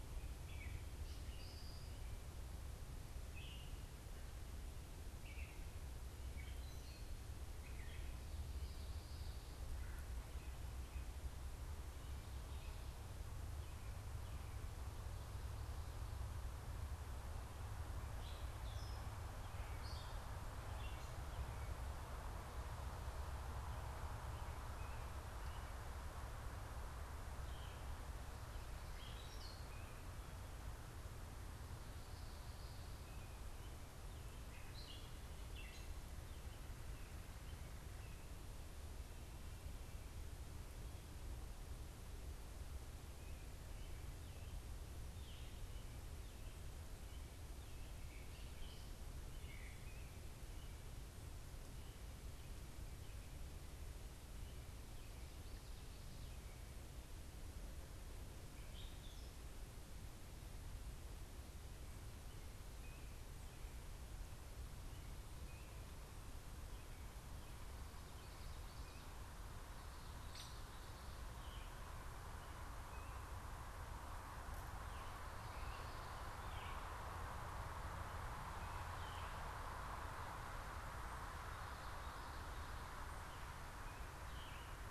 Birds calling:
Gray Catbird (Dumetella carolinensis), Red-bellied Woodpecker (Melanerpes carolinus), Hairy Woodpecker (Dryobates villosus), unidentified bird

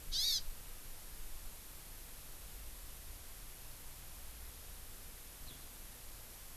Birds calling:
Hawaii Amakihi (Chlorodrepanis virens), Eurasian Skylark (Alauda arvensis)

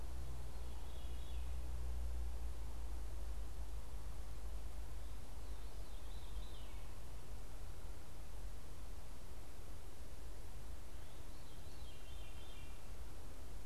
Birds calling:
Veery (Catharus fuscescens)

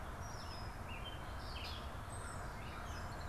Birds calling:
Gray Catbird (Dumetella carolinensis), American Crow (Corvus brachyrhynchos), Red-winged Blackbird (Agelaius phoeniceus)

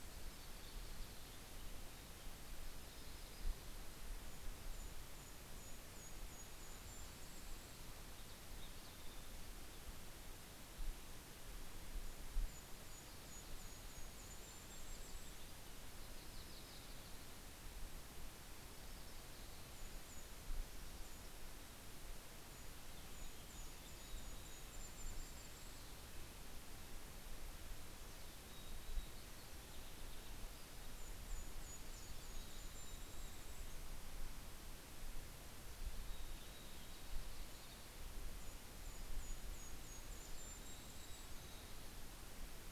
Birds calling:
Golden-crowned Kinglet (Regulus satrapa), Yellow-rumped Warbler (Setophaga coronata), Mountain Chickadee (Poecile gambeli), Red-breasted Nuthatch (Sitta canadensis)

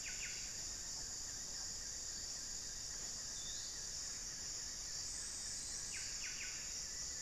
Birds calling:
Black-fronted Nunbird (Monasa nigrifrons), Buff-breasted Wren (Cantorchilus leucotis), Forest Elaenia (Myiopagis gaimardii)

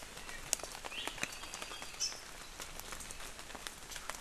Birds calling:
Apapane (Himatione sanguinea), Hawaii Amakihi (Chlorodrepanis virens)

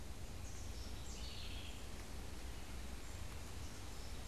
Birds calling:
House Wren (Troglodytes aedon)

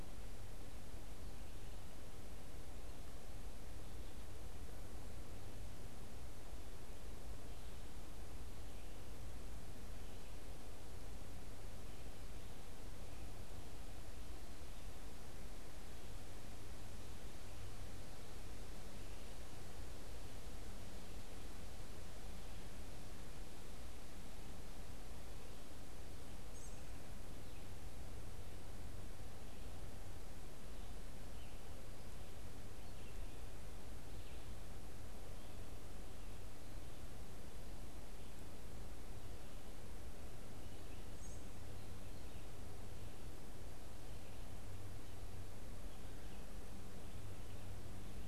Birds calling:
Northern Cardinal (Cardinalis cardinalis)

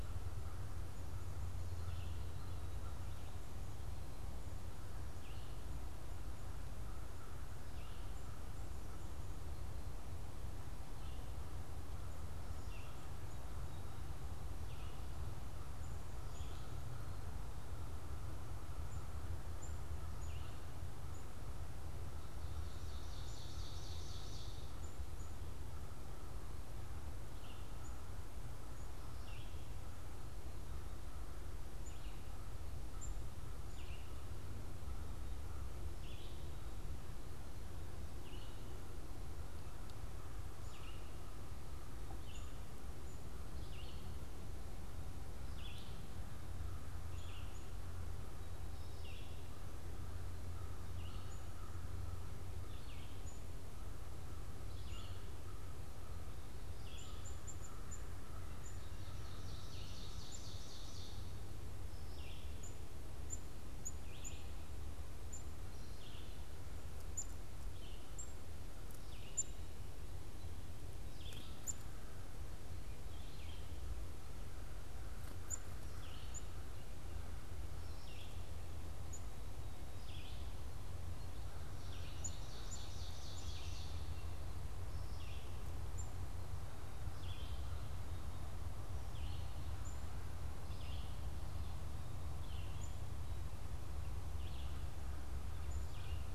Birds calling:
American Crow (Corvus brachyrhynchos), Black-capped Chickadee (Poecile atricapillus), Red-eyed Vireo (Vireo olivaceus), Ovenbird (Seiurus aurocapilla)

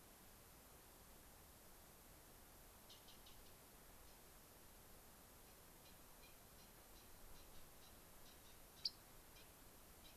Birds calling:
Dark-eyed Junco (Junco hyemalis)

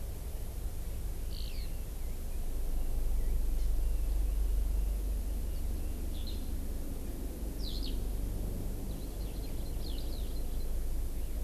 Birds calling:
Hawaii Amakihi (Chlorodrepanis virens), Eurasian Skylark (Alauda arvensis)

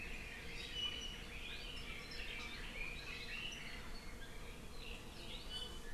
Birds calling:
Apapane (Himatione sanguinea), Red-billed Leiothrix (Leiothrix lutea)

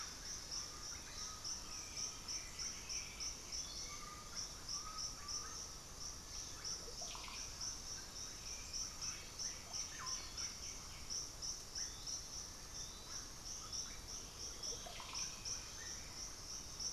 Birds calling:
unidentified bird, Undulated Tinamou (Crypturellus undulatus), White-winged Becard (Pachyramphus polychopterus), Russet-backed Oropendola (Psarocolius angustifrons), Hauxwell's Thrush (Turdus hauxwelli)

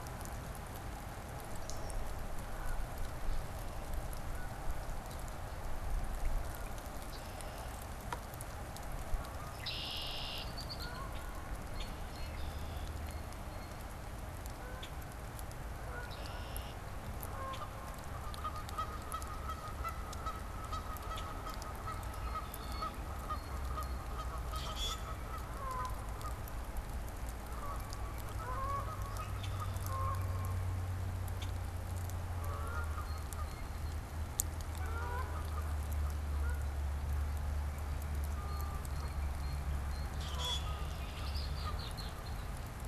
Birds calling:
Common Grackle (Quiscalus quiscula), Canada Goose (Branta canadensis), Red-winged Blackbird (Agelaius phoeniceus), Blue Jay (Cyanocitta cristata)

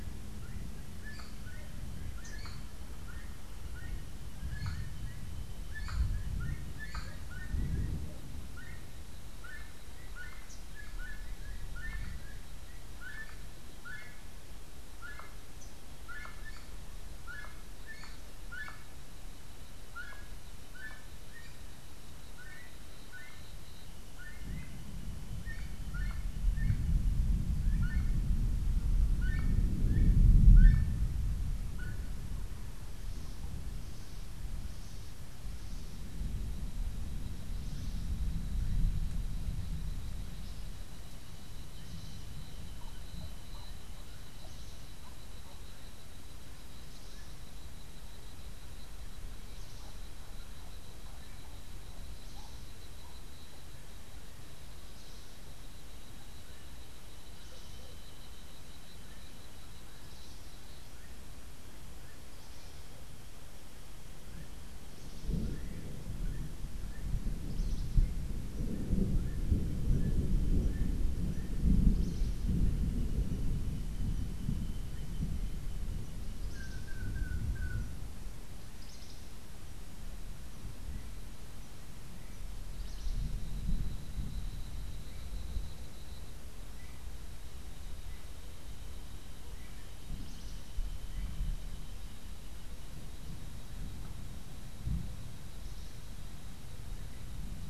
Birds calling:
Gray-headed Chachalaca (Ortalis cinereiceps), Long-tailed Manakin (Chiroxiphia linearis), Rufous-capped Warbler (Basileuterus rufifrons), Cabanis's Wren (Cantorchilus modestus)

